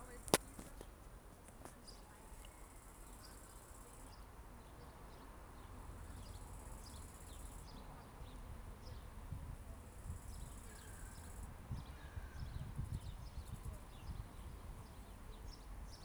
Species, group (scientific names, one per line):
Chorthippus biguttulus
Orthoptera